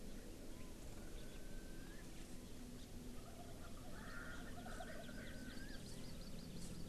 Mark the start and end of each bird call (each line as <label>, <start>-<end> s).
Erckel's Francolin (Pternistis erckelii), 4.0-5.6 s
Wild Turkey (Meleagris gallopavo), 4.0-5.6 s
Hawaii Amakihi (Chlorodrepanis virens), 4.6-6.9 s